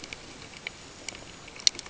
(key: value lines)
label: ambient
recorder: HydroMoth